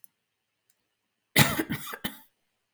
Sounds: Cough